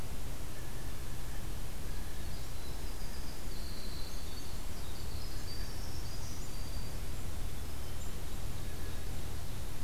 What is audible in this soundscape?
Blue Jay, Winter Wren, Black-throated Green Warbler, Black-capped Chickadee, Ovenbird